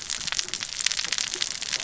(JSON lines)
{"label": "biophony, cascading saw", "recorder": "SoundTrap 600 or HydroMoth"}